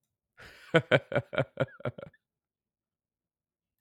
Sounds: Laughter